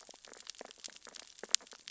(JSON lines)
{"label": "biophony, sea urchins (Echinidae)", "recorder": "SoundTrap 600 or HydroMoth"}